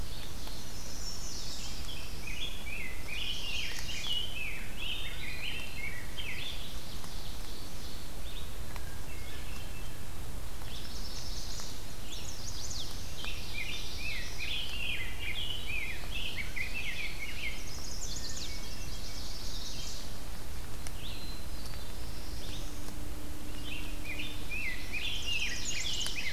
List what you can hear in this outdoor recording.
Ovenbird, Red-eyed Vireo, Chestnut-sided Warbler, Black-throated Blue Warbler, Rose-breasted Grosbeak, Hermit Thrush, Common Yellowthroat